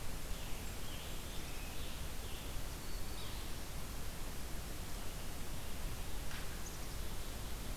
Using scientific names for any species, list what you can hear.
Piranga olivacea, Setophaga virens, Poecile atricapillus